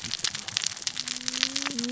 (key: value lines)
label: biophony, cascading saw
recorder: SoundTrap 600 or HydroMoth